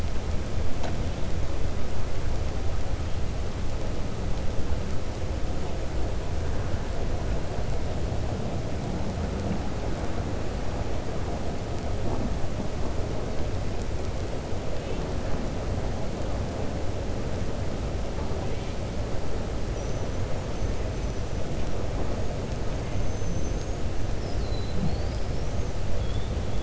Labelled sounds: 22.8	23.8	killer whale, 6.1 to 6.8 kHz

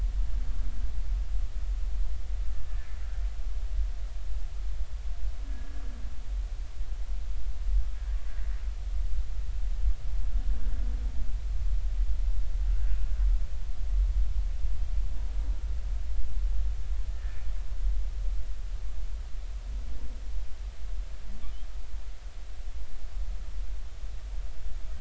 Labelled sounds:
5.5	5.8	humpback whale, 1.6 to 1.7 kHz
12.7	12.9	humpback whale, 1.3 to 1.7 kHz
17.1	17.4	humpback whale, 1.7 to 1.9 kHz

